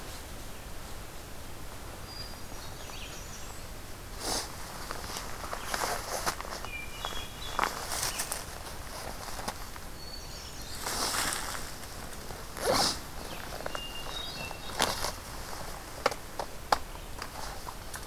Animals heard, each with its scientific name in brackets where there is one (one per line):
American Redstart (Setophaga ruticilla)
Hermit Thrush (Catharus guttatus)